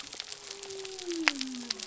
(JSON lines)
{"label": "biophony", "recorder": "SoundTrap 300"}